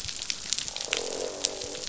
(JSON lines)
{"label": "biophony, croak", "recorder": "SoundTrap 500"}